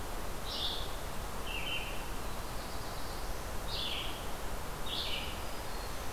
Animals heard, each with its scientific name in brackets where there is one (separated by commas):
Red-eyed Vireo (Vireo olivaceus), Black-throated Blue Warbler (Setophaga caerulescens)